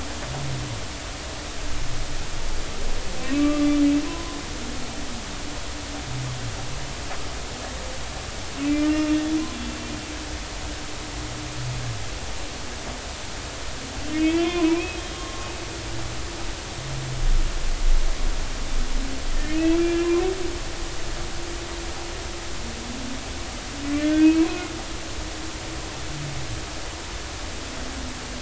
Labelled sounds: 3.2	3.7	humpback whale, 0.99 to 1.2 kHz
4.1	4.4	humpback whale, 0.96 to 1.1 kHz
8.6	9.1	humpback whale, 2.0 to 2.8 kHz
14.1	15.5	humpback whale, 0.86 to 3.6 kHz
19.3	20.1	humpback whale, 1.6 to 2.8 kHz
24.0	24.6	humpback whale, 0.96 to 2.7 kHz

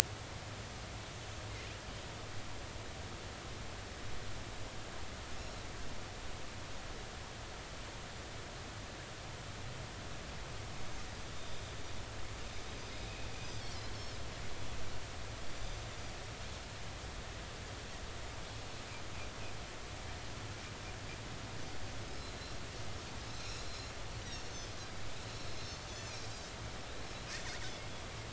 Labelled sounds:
11.4	11.6	Pacific white-sided dolphin, 3.6 to 3.7 kHz
13.4	14.2	Pacific white-sided dolphin, 4.9 to 6.2 kHz
15.5	15.8	Pacific white-sided dolphin, 4.7 to 4.9 kHz
23.3	23.9	Pacific white-sided dolphin, 2.4 to 4.3 kHz
24.2	24.5	Pacific white-sided dolphin, 5.4 to 5.9 kHz

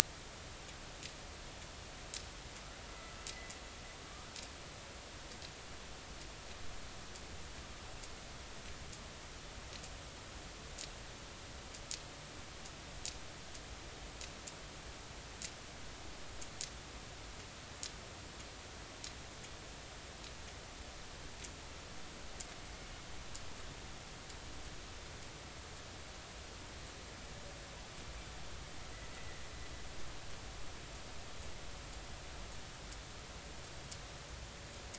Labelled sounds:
2.9	3.2	killer whale, northern resident, A clan, AB subclan, B01 pod, call N01ii, 2.0 to 2.1 kHz
29.1	29.4	killer whale, northern resident, A clan, AB subclan, B01 pod, call N01ii, 1.8 to 2.0 kHz

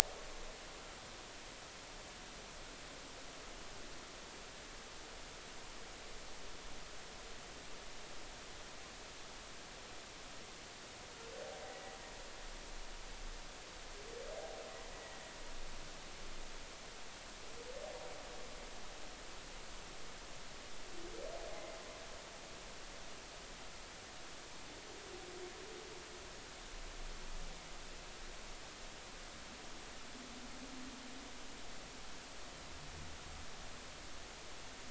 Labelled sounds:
11.7	12.0	humpback whale, 1.9 to 2.0 kHz
14.9	15.2	humpback whale, 1.9 to 2.0 kHz
21.5	21.7	humpback whale, 2.0 to 2.2 kHz

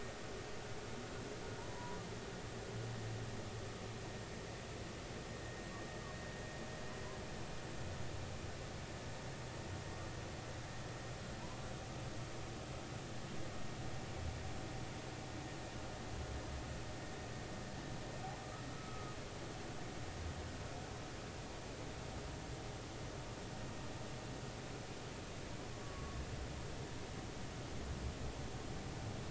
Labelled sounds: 1.6	2.0	humpback whale, 0.86 to 1.0 kHz
18.7	19.1	humpback whale, 1.2 to 1.4 kHz
25.8	26.2	humpback whale, 1.1 to 1.2 kHz

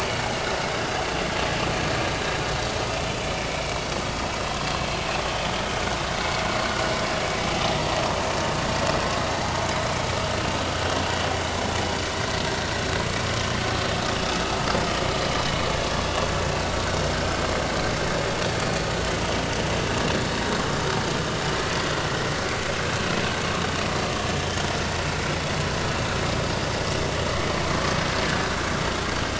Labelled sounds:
3.3	3.6	vessel noise, 2.1 to 2.4 kHz
17.1	17.4	vessel noise, 1.5 to 1.6 kHz

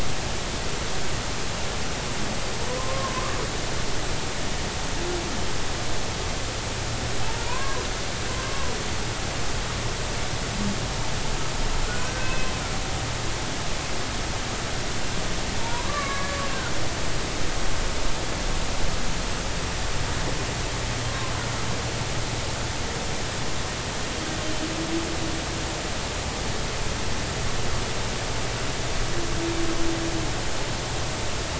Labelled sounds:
2.8	3.1	humpback whale, 0.96 to 1.1 kHz
7.4	8.7	humpback whale, 0.90 to 1.2 kHz
11.9	12.5	humpback whale, 1.4 to 2.7 kHz
15.6	16.4	humpback whale, 0.86 to 2.4 kHz
21.1	21.3	humpback whale, 0.99 to 1.1 kHz

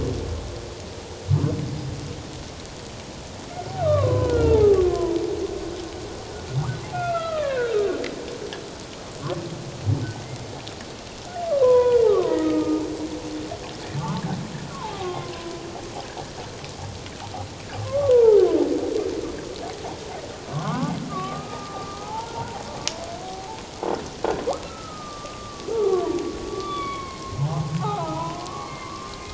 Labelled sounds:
3.8	5.2	humpback whale, 0.78 to 1.6 kHz
6.9	7.7	humpback whale, 1.0 to 3.4 kHz
11.5	12.8	humpback whale, 0.91 to 2.5 kHz
14.0	15.3	humpback whale, 0.78 to 1.3 kHz
17.8	18.4	humpback whale, 0.84 to 1.5 kHz
20.5	22.6	humpback whale, 0.78 to 1.6 kHz
23.2	23.6	humpback whale, 0.78 to 0.94 kHz
24.7	26.1	humpback whale, 0.94 to 1.4 kHz
26.5	29.1	humpback whale, 0.78 to 3.5 kHz

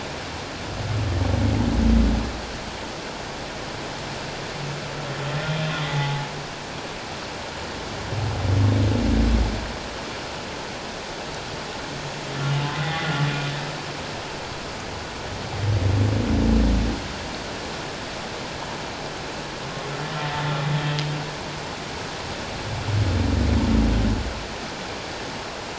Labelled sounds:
5.9	6.3	humpback whale, 0.81 to 0.91 kHz
12.7	13.1	humpback whale, 1.9 to 3.5 kHz

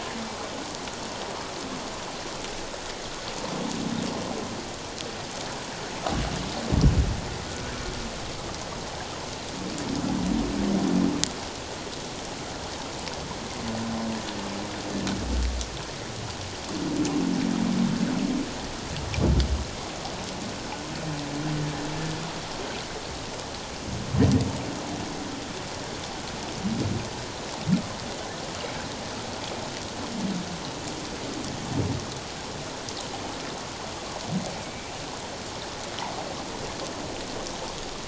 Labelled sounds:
34.6	34.9	humpback whale, 2.2 to 2.4 kHz

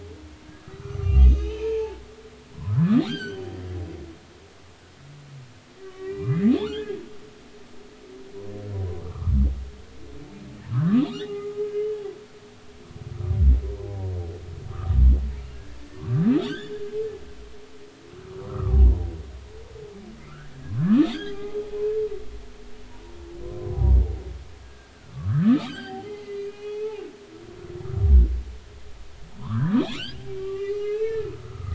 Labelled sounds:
0.6	2.0	humpback whale, 0.80 to 6.3 kHz
3.1	3.5	humpback whale, 1.3 to 8.0 kHz
5.8	7.0	humpback whale, 0.80 to 2.5 kHz
8.8	9.4	humpback whale, 0.96 to 1.4 kHz
10.7	11.6	humpback whale, 0.99 to 2.1 kHz
14.7	15.0	humpback whale, 1.0 to 1.4 kHz
15.5	16.8	humpback whale, 0.96 to 3.8 kHz
18.4	18.8	humpback whale, 0.96 to 1.4 kHz
20.3	21.6	humpback whale, 0.80 to 3.8 kHz
22.9	23.2	humpback whale, 0.90 to 0.99 kHz
23.6	24.0	humpback whale, 0.90 to 1.1 kHz
25.1	27.0	humpback whale, 0.80 to 5.0 kHz
29.4	31.7	humpback whale, 0.90 to 4.2 kHz

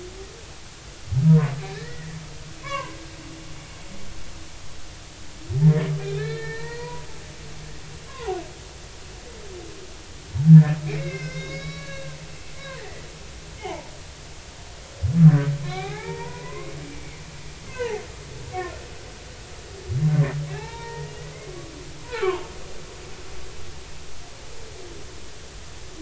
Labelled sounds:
1.3	2.2	humpback whale, 0.90 to 2.0 kHz
2.6	3.9	humpback whale, 0.90 to 2.3 kHz
6.0	7.1	humpback whale, 0.86 to 4.4 kHz
8.1	8.4	humpback whale, 0.80 to 1.2 kHz
10.5	13.1	humpback whale, 0.93 to 6.2 kHz
13.6	13.9	humpback whale, 0.80 to 1.1 kHz
15.6	17.0	humpback whale, 0.80 to 3.8 kHz
17.7	18.0	humpback whale, 0.80 to 1.1 kHz
18.7	19.0	humpback whale, 1.7 to 2.2 kHz
20.5	21.1	humpback whale, 0.80 to 2.8 kHz
22.0	22.4	humpback whale, 0.80 to 2.4 kHz

